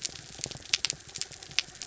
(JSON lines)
{"label": "anthrophony, mechanical", "recorder": "SoundTrap 300"}